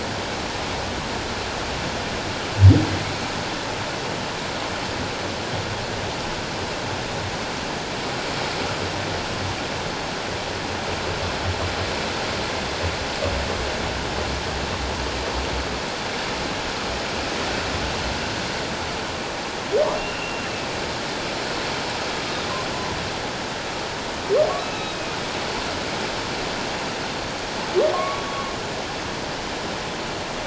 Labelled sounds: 19.9	20.5	humpback whale, 2.6 to 2.8 kHz
24.6	25.0	humpback whale, 2.5 to 3.9 kHz
27.9	28.3	humpback whale, 1.0 to 1.2 kHz

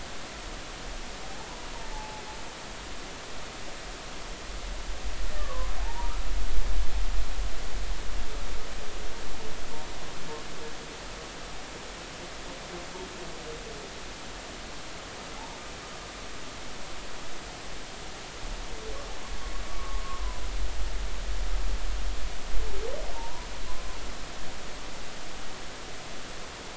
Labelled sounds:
1.9	2.2	humpback whale, 0.80 to 0.93 kHz
5.4	6.2	humpback whale, 0.80 to 1.2 kHz
19.7	20.4	humpback whale, 0.96 to 1.2 kHz
23.1	23.5	humpback whale, 0.83 to 1.0 kHz

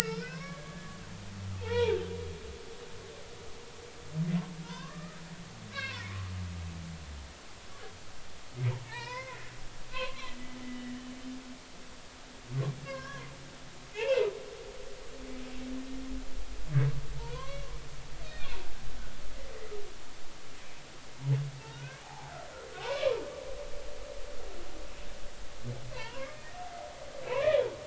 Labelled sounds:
0.0	0.6	humpback whale, 0.99 to 2.7 kHz
1.0	2.0	humpback whale, 0.80 to 3.5 kHz
4.6	6.1	humpback whale, 0.90 to 2.9 kHz
8.9	10.4	humpback whale, 0.83 to 4.0 kHz
10.9	11.2	humpback whale, 2.9 to 3.1 kHz
12.8	14.3	humpback whale, 0.93 to 2.9 kHz
17.2	17.7	humpback whale, 0.86 to 2.3 kHz
18.2	18.6	humpback whale, 2.3 to 4.4 kHz
21.6	22.3	humpback whale, 0.80 to 1.7 kHz
22.8	23.2	humpback whale, 2.2 to 2.5 kHz
25.9	27.7	humpback whale, 0.86 to 3.4 kHz

